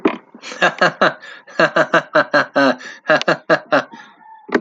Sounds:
Laughter